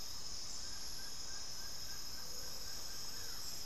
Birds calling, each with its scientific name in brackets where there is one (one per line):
Plain-winged Antshrike (Thamnophilus schistaceus)